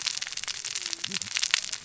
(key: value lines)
label: biophony, cascading saw
recorder: SoundTrap 600 or HydroMoth